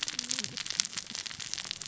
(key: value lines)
label: biophony, cascading saw
recorder: SoundTrap 600 or HydroMoth